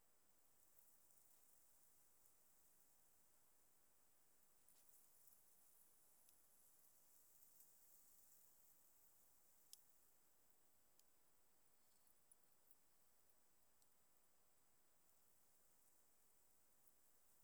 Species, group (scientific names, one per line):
Synephippius obvius
Orthoptera